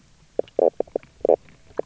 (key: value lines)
label: biophony, knock croak
recorder: SoundTrap 300